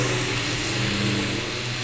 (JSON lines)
{"label": "anthrophony, boat engine", "recorder": "SoundTrap 500"}